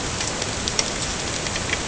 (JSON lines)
{"label": "ambient", "recorder": "HydroMoth"}